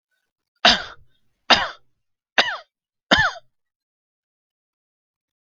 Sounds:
Cough